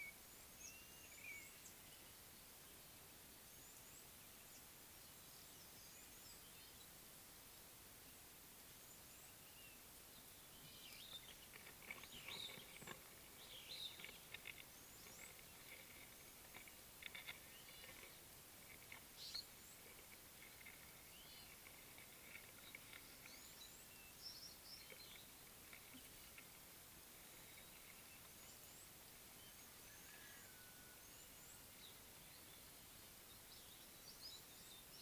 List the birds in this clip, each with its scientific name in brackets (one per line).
Superb Starling (Lamprotornis superbus)
Red-rumped Swallow (Cecropis daurica)
Red-cheeked Cordonbleu (Uraeginthus bengalus)
Meyer's Parrot (Poicephalus meyeri)